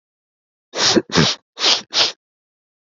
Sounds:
Sniff